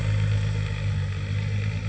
{"label": "anthrophony, boat engine", "recorder": "HydroMoth"}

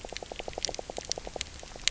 {"label": "biophony, knock croak", "recorder": "SoundTrap 300"}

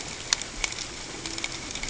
{"label": "ambient", "recorder": "HydroMoth"}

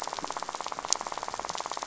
{"label": "biophony, rattle", "recorder": "SoundTrap 500"}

